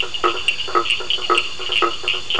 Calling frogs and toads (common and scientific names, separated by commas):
blacksmith tree frog (Boana faber), two-colored oval frog (Elachistocleis bicolor), Cochran's lime tree frog (Sphaenorhynchus surdus)